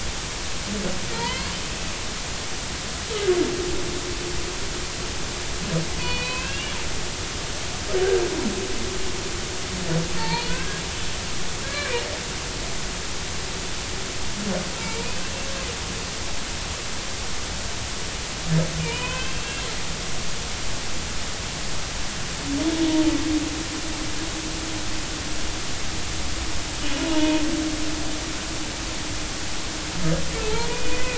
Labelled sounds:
1.1	1.5	humpback whale, 1.8 to 2.7 kHz
6.0	6.7	humpback whale, 2.4 to 4.6 kHz
10.2	10.8	humpback whale, 0.83 to 4.4 kHz
11.6	12.0	humpback whale, 1.5 to 2.5 kHz
14.8	15.3	humpback whale, 2.2 to 2.7 kHz
18.8	19.7	humpback whale, 0.90 to 3.1 kHz
27.0	27.4	humpback whale, 0.86 to 0.99 kHz
30.7	31.1	humpback whale, 1.9 to 2.6 kHz

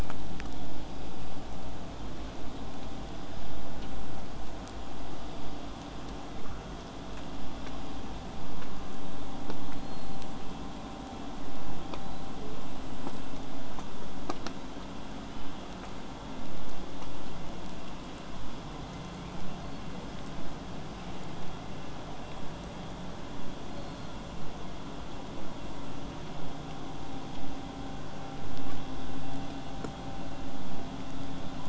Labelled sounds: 9.6	10.3	killer whale, 4.0 to 4.3 kHz
11.8	12.5	killer whale, 3.2 to 4.3 kHz
12.6	13.3	killer whale, whistle, 7.2 to 7.8 kHz
15.2	15.6	killer whale, 2.6 to 3.2 kHz
19.6	20.2	killer whale, southern resident, 1.9 to 4.6 kHz
23.7	24.2	killer whale, southern resident, L pod, call S16, 3.9 to 4.4 kHz

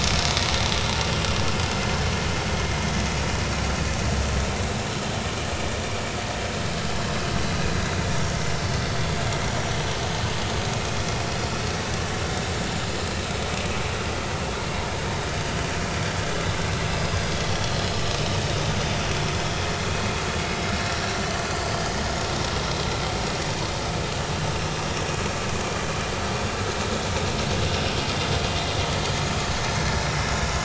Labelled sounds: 16.9	17.2	vessel noise, 4.9 to 5.1 kHz

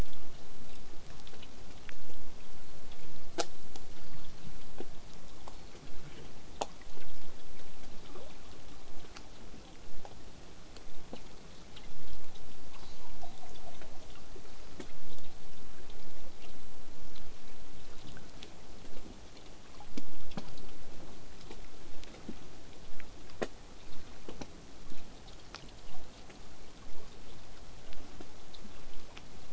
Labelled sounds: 2.7	4.3	killer whale, southern resident, whistle, 4.3 to 8.0 kHz
12.7	14.3	killer whale, southern resident, call S10, 0.46 to 7.9 kHz

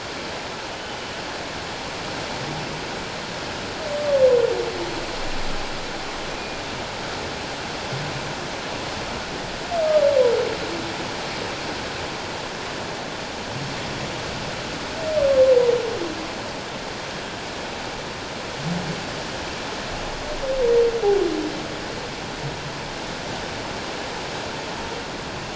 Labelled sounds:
0.7	1.0	humpback whale, 2.9 to 3.1 kHz

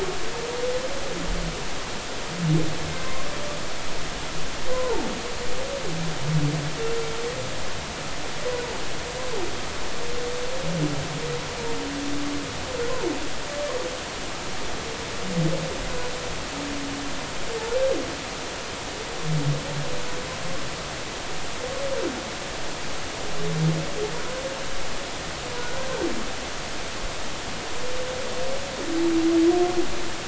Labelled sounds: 2.9	3.2	humpback whale, 2.0 to 2.2 kHz
4.7	5.0	humpback whale, 0.83 to 1.1 kHz

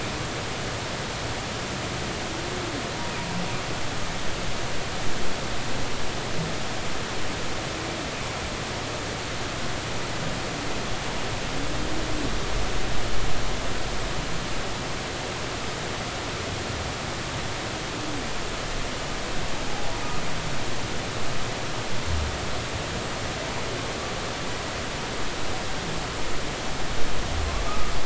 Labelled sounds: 19.7	19.9	humpback whale, 0.80 to 0.86 kHz
27.7	27.9	humpback whale, 1.1 to 1.3 kHz

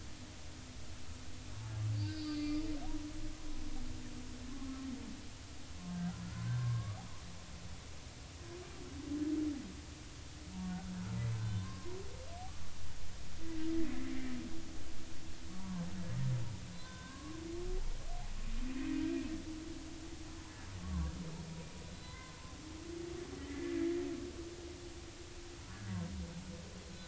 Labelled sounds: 1.9	2.6	humpback whale, 1.2 to 5.0 kHz
6.4	7.0	humpback whale, 1.0 to 1.8 kHz
11.6	12.0	humpback whale, 0.93 to 1.6 kHz
15.6	15.9	humpback whale, 0.86 to 1.2 kHz
16.7	17.4	humpback whale, 0.96 to 3.6 kHz
20.8	21.1	humpback whale, 0.93 to 1.2 kHz
21.9	22.4	humpback whale, 0.96 to 4.1 kHz
23.4	23.7	humpback whale, 1.7 to 2.1 kHz

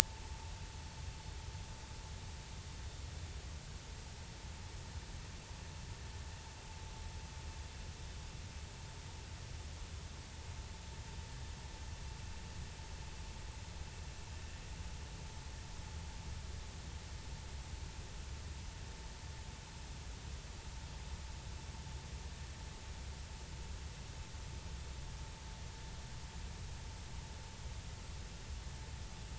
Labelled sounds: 1.0	1.5	vessel noise, 0.80 to 0.99 kHz

